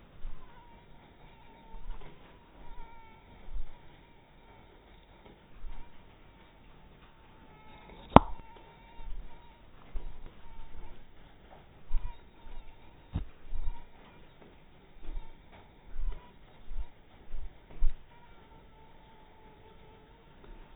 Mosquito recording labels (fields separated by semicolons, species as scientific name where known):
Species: mosquito; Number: one; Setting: cup